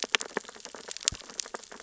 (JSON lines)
{"label": "biophony, sea urchins (Echinidae)", "recorder": "SoundTrap 600 or HydroMoth"}